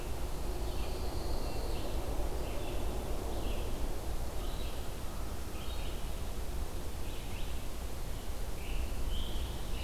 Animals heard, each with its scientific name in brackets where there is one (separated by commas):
Scarlet Tanager (Piranga olivacea), Red-eyed Vireo (Vireo olivaceus), Pine Warbler (Setophaga pinus)